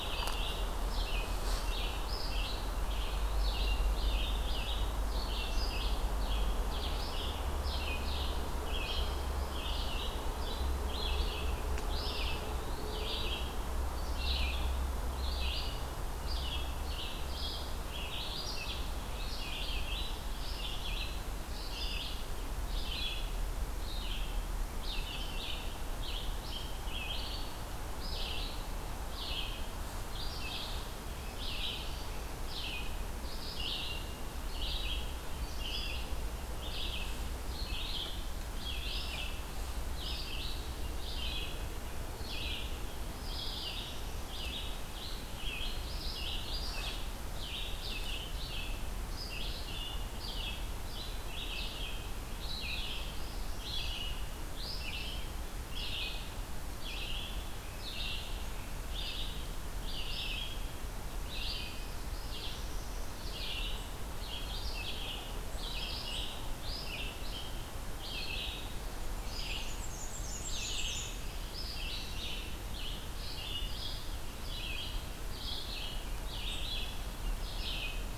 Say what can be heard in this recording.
Red-eyed Vireo, Eastern Wood-Pewee, Northern Parula, Black-and-white Warbler